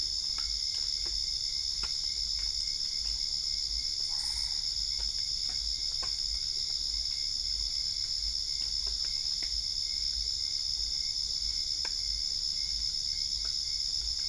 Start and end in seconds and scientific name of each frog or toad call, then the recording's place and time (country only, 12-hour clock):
4.0	4.7	Boana albopunctata
Brazil, 10:15pm